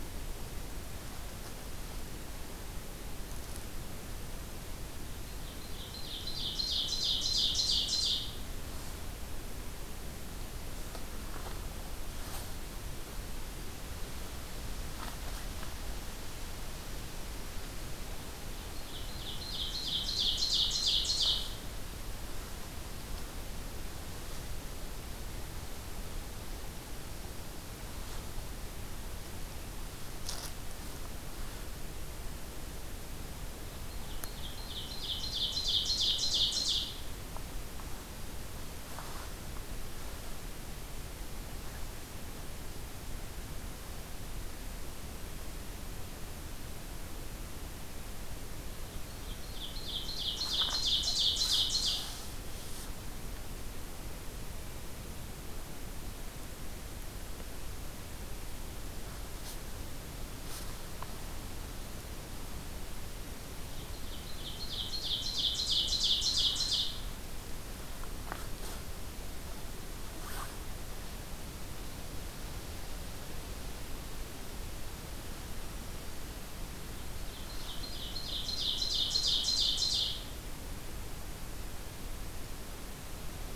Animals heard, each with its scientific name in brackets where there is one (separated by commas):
Ovenbird (Seiurus aurocapilla)